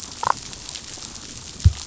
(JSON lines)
{"label": "biophony, damselfish", "recorder": "SoundTrap 500"}